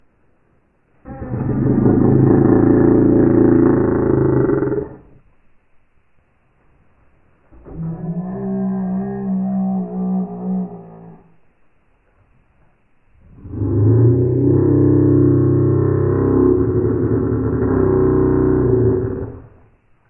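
A guttural motor sound. 1.0 - 5.0
A cow moos in a low pitch. 7.5 - 11.2
A low, guttural engine sound. 13.4 - 19.5

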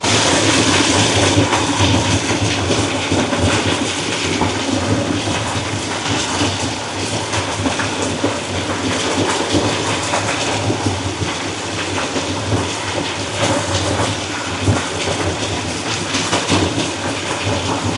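Stone or gravel tumbling, producing a series of impacts and scraping sounds. 0.0 - 18.0

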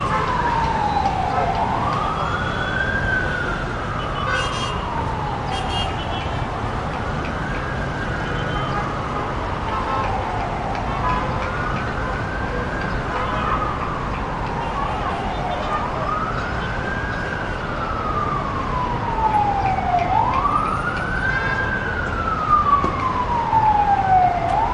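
An ambulance siren gradually fades away and then increases again. 0.0 - 24.7

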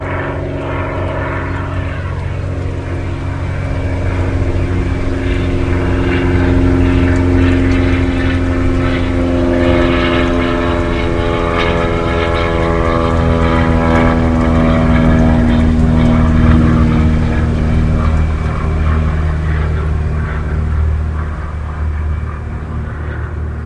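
An airplane engine is running. 0.0 - 23.7

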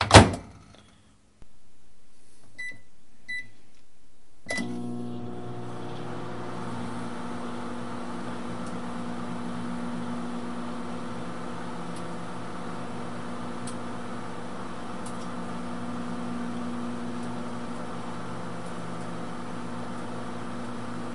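A microwave door opening. 0.0 - 0.4
A microwave beeps while being set. 2.5 - 3.5
A microwave beeps while being set. 4.4 - 4.7
A fan is spinning at a constant high speed. 4.4 - 21.1
A microwave is operating at a constant speed. 4.5 - 21.1
A microwave is crackling while running. 8.5 - 8.8
A microwave is crackling while running. 11.8 - 12.0
A microwave is crackling while running. 13.6 - 13.7
A microwave is crackling while running. 15.0 - 15.2

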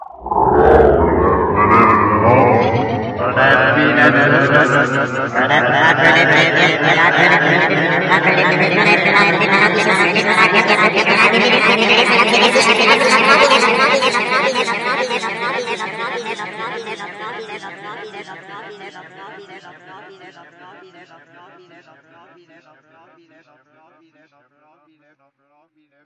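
Dialogue with sliding timescale, pitch shift, delay, lower pitch, and reverb effects applied. 0.0 - 26.1

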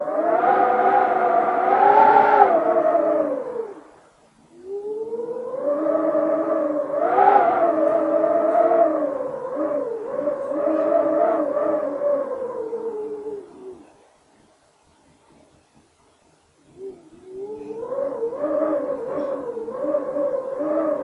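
Wind whistles with increasing intensity. 0.0 - 3.9
Wind whistles with fluctuating intensity. 4.6 - 13.8
Wind whispers softly in a uniform pattern. 16.8 - 21.0

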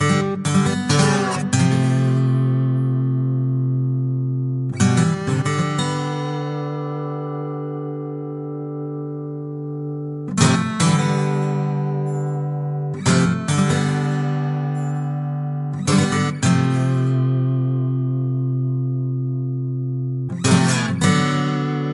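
A guitar plays rhythmically as the sound gradually fades in. 0.0 - 21.9
A guitar plays rhythmically with fading pauses. 0.0 - 21.9

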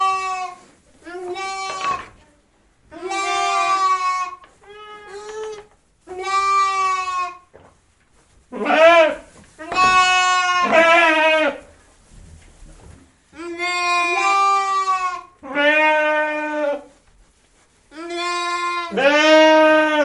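A sheep bleats loudly and noisily indoors. 0.0 - 2.2
A flock of sheep rustling through straw repeatedly and clearly. 0.0 - 20.0
Sheep rubbing against wood, producing a muffled sound. 1.4 - 2.3
A pair of sheep bleats loudly indoors. 2.9 - 4.3
Sheep rubbing against wood, producing muffled sounds. 4.1 - 5.7
A pair of sheep bleats quietly and muffled. 4.7 - 5.6
A sheep bleats loudly and noisily indoors. 6.1 - 7.7
A sheep bleats loudly indoors. 8.5 - 11.6
A sheep bleats loudly and then very softly indoors. 9.6 - 10.7
A sheep bleats loudly and roughly indoors. 10.7 - 11.6
A pair of sheep bleats loudly indoors. 13.4 - 15.3
A sheep bleats lengthily and moderately indoors. 15.4 - 16.8
Sheep rubbing against wood. 17.0 - 17.9
A sheep bleats loudly and then very softly indoors. 17.9 - 18.9
A pair of sheep bleats loudly indoors. 17.9 - 20.0
A sheep bleats loudly and roughly indoors. 18.9 - 20.0

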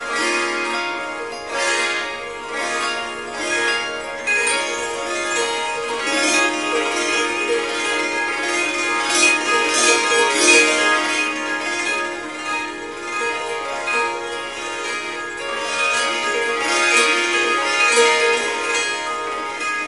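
Harp playing a melody with gentle plucking and smooth sweeping strokes across the strings. 0.0 - 19.9

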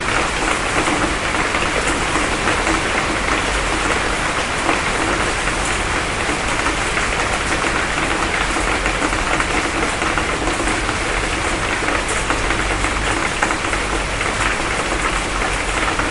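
Rain falls steadily and loudly outdoors. 0.0 - 16.1

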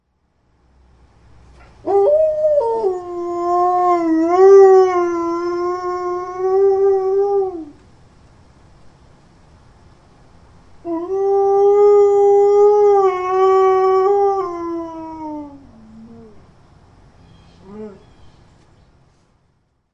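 A wolf or a dog howling. 1.5 - 7.9
Water drops falling onto a flat surface. 7.9 - 10.8
An unknown animal or bird sound is heard in the background. 17.2 - 18.4

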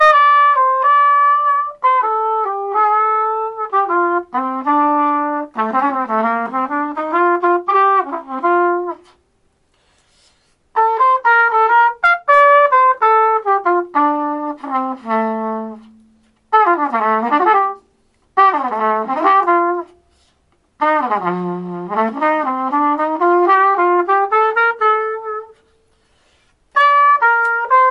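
A trumpet plays jazz music live. 0.0 - 27.7

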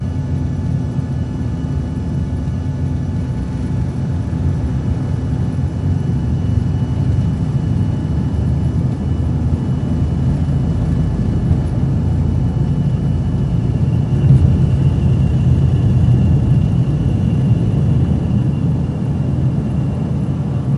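An airplane turbine is running. 0.0 - 20.8

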